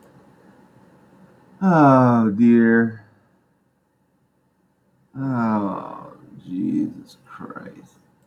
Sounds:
Sigh